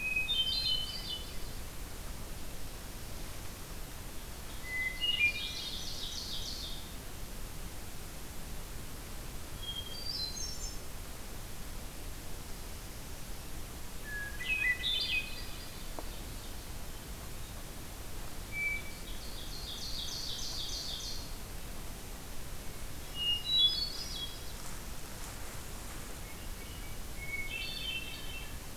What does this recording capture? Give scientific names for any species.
Catharus guttatus, Seiurus aurocapilla